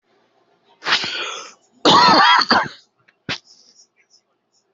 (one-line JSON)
{"expert_labels": [{"quality": "ok", "cough_type": "dry", "dyspnea": false, "wheezing": true, "stridor": false, "choking": false, "congestion": false, "nothing": false, "diagnosis": "COVID-19", "severity": "mild"}, {"quality": "ok", "cough_type": "wet", "dyspnea": false, "wheezing": false, "stridor": false, "choking": false, "congestion": false, "nothing": true, "diagnosis": "lower respiratory tract infection", "severity": "mild"}, {"quality": "good", "cough_type": "dry", "dyspnea": false, "wheezing": false, "stridor": false, "choking": false, "congestion": false, "nothing": true, "diagnosis": "upper respiratory tract infection", "severity": "mild"}, {"quality": "good", "cough_type": "dry", "dyspnea": false, "wheezing": false, "stridor": false, "choking": false, "congestion": false, "nothing": true, "diagnosis": "upper respiratory tract infection", "severity": "mild"}], "age": 32, "gender": "male", "respiratory_condition": false, "fever_muscle_pain": false, "status": "symptomatic"}